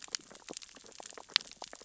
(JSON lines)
{"label": "biophony, sea urchins (Echinidae)", "recorder": "SoundTrap 600 or HydroMoth"}